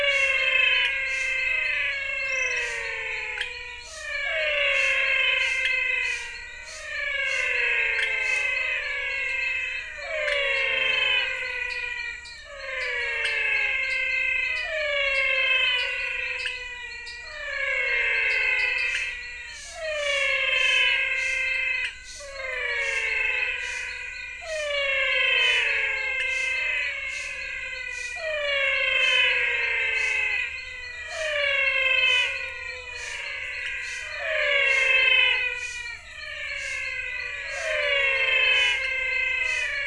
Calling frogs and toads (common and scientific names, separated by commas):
Adenomera diptyx, menwig frog (Physalaemus albonotatus), pointedbelly frog (Leptodactylus podicipinus), dwarf tree frog (Dendropsophus nanus)